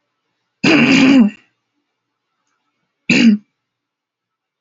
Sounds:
Throat clearing